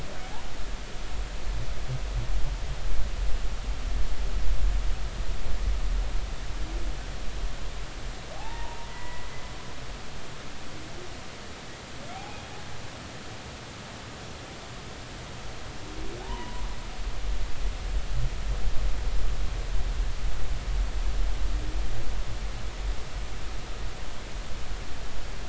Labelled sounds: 8.4	9.3	humpback whale, 0.80 to 2.0 kHz
16.2	16.6	humpback whale, 0.80 to 3.1 kHz

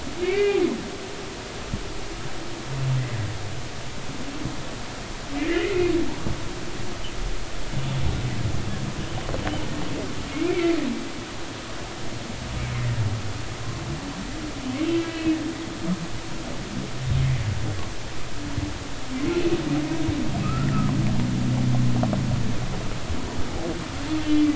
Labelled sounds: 0.2	0.6	humpback whale, 1.9 to 2.9 kHz
5.4	5.9	humpback whale, 1.7 to 2.2 kHz
10.3	10.7	humpback whale, 2.0 to 2.5 kHz
14.8	15.4	humpback whale, 2.5 to 3.0 kHz
20.4	20.7	humpback whale, 1.2 to 1.5 kHz
24.2	24.5	humpback whale, 2.3 to 3.4 kHz

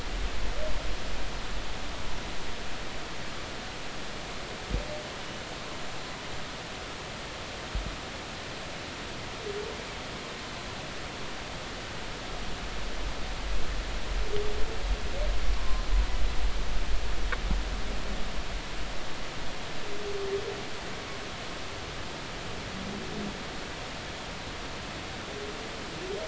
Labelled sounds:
15.5	16.0	humpback whale, 0.93 to 4.2 kHz

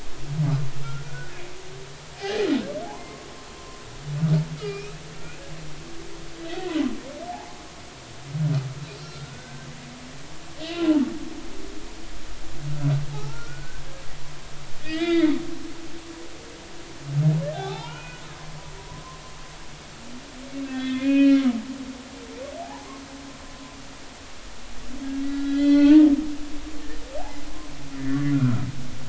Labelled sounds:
0.8	1.3	humpback whale, 1.2 to 1.6 kHz
2.9	3.8	humpback whale, 0.80 to 1.1 kHz
4.6	4.9	humpback whale, 2.3 to 2.6 kHz
7.3	7.6	humpback whale, 0.80 to 0.99 kHz
9.0	9.7	humpback whale, 1.3 to 4.8 kHz
10.7	11.1	humpback whale, 0.86 to 1.1 kHz
13.1	13.9	humpback whale, 0.80 to 1.6 kHz
14.8	15.3	humpback whale, 1.2 to 4.9 kHz
17.5	18.3	humpback whale, 0.80 to 4.1 kHz
18.8	19.0	humpback whale, 0.93 to 1.1 kHz
20.7	21.4	humpback whale, 1.5 to 3.6 kHz
22.6	22.9	humpback whale, 0.80 to 1.0 kHz
25.3	26.1	humpback whale, 0.80 to 4.6 kHz
28.3	28.7	humpback whale, 1.1 to 1.6 kHz

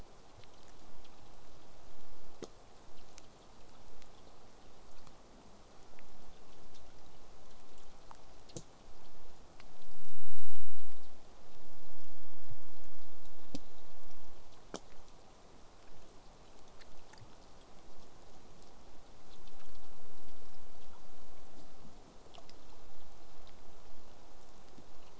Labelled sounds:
15.9	20.9	vessel noise, 0 to 8.0 kHz

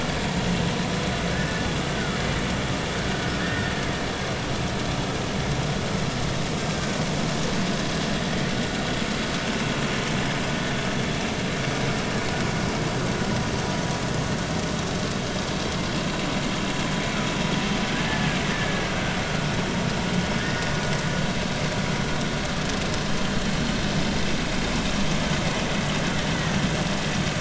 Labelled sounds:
1.9	2.2	killer whale, Bigg's (transient), 1.2 to 1.6 kHz
3.4	3.7	killer whale, Bigg's (transient), 1.6 to 1.9 kHz
6.8	7.0	killer whale, Bigg's (transient), 1.5 to 1.6 kHz
18.5	18.8	killer whale, Bigg's (transient), 1.6 to 1.8 kHz
20.4	20.7	killer whale, Bigg's (transient), 1.6 to 1.9 kHz
26.3	26.6	killer whale, Bigg's (transient), 1.8 to 2.1 kHz

